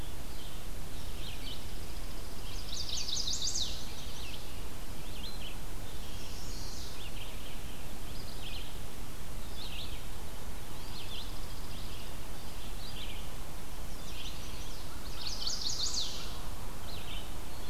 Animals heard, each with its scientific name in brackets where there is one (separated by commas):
Red-eyed Vireo (Vireo olivaceus), Eastern Wood-Pewee (Contopus virens), Chipping Sparrow (Spizella passerina), Chestnut-sided Warbler (Setophaga pensylvanica)